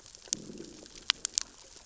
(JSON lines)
{"label": "biophony, growl", "recorder": "SoundTrap 600 or HydroMoth"}